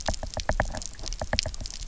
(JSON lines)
{"label": "biophony, knock", "recorder": "SoundTrap 300"}